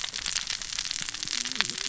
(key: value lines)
label: biophony, cascading saw
recorder: SoundTrap 600 or HydroMoth